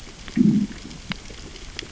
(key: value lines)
label: biophony, growl
recorder: SoundTrap 600 or HydroMoth